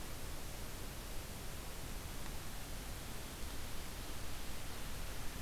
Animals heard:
forest ambience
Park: Acadia National Park